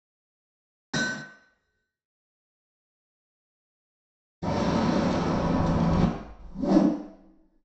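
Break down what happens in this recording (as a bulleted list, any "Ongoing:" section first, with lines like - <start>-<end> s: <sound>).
- 0.93-1.23 s: you can hear a hammer
- 4.42-6.06 s: wind is audible
- 6.38-6.88 s: there is whooshing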